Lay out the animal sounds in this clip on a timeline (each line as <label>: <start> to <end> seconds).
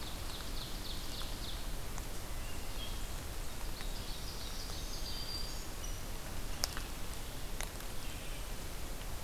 Ovenbird (Seiurus aurocapilla): 0.0 to 1.7 seconds
Hermit Thrush (Catharus guttatus): 2.1 to 3.2 seconds
Ovenbird (Seiurus aurocapilla): 3.5 to 5.3 seconds
Black-throated Green Warbler (Setophaga virens): 4.0 to 5.8 seconds
Rose-breasted Grosbeak (Pheucticus ludovicianus): 5.8 to 6.0 seconds